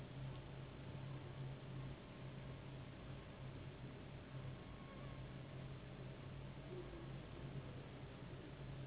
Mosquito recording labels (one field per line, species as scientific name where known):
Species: Anopheles gambiae s.s.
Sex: female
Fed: unfed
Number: one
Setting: insect culture